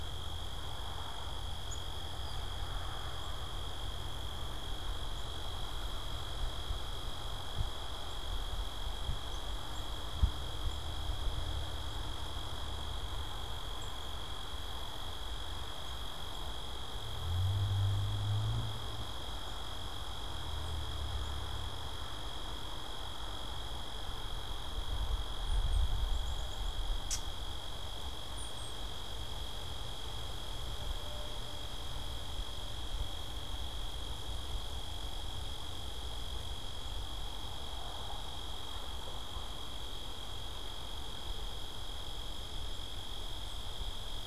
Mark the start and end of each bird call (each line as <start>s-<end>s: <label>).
25.1s-26.9s: Black-capped Chickadee (Poecile atricapillus)
27.0s-27.3s: Gray Catbird (Dumetella carolinensis)
28.3s-28.9s: unidentified bird